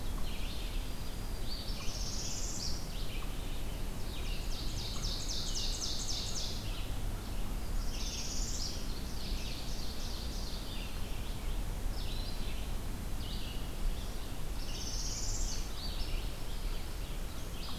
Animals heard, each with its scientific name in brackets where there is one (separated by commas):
Northern Parula (Setophaga americana), Black-throated Green Warbler (Setophaga virens), unknown mammal, Ovenbird (Seiurus aurocapilla), Red-eyed Vireo (Vireo olivaceus)